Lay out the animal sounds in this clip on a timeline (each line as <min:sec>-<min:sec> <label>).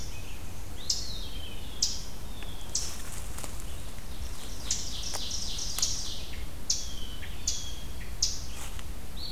0:00.0-0:09.3 Eastern Chipmunk (Tamias striatus)
0:00.7-0:01.9 Eastern Wood-Pewee (Contopus virens)
0:04.2-0:06.5 Ovenbird (Seiurus aurocapilla)
0:06.7-0:08.1 Blue Jay (Cyanocitta cristata)